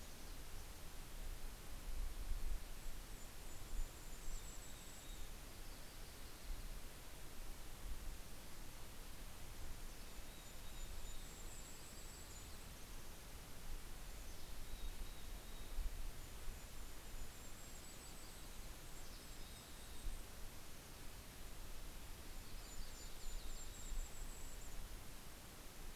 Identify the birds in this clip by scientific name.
Poecile gambeli, Regulus satrapa, Setophaga coronata, Sitta canadensis